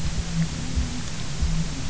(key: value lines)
label: anthrophony, boat engine
recorder: SoundTrap 300